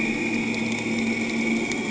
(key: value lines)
label: anthrophony, boat engine
recorder: HydroMoth